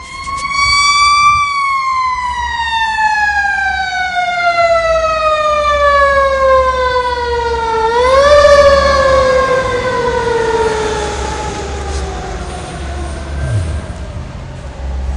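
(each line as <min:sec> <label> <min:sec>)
0:00.0 A loud, high-pitched ambulance siren. 0:15.2
0:10.5 An ambulance siren fades away. 0:15.2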